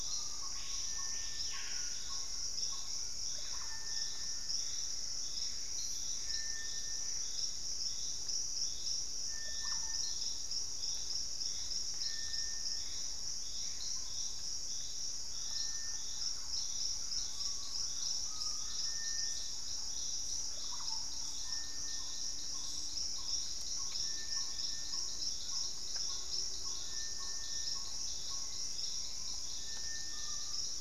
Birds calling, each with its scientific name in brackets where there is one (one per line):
Gray Antbird (Cercomacra cinerascens)
Screaming Piha (Lipaugus vociferans)
Black-tailed Trogon (Trogon melanurus)
Collared Trogon (Trogon collaris)
Thrush-like Wren (Campylorhynchus turdinus)
Russet-backed Oropendola (Psarocolius angustifrons)
Purple-throated Fruitcrow (Querula purpurata)
Hauxwell's Thrush (Turdus hauxwelli)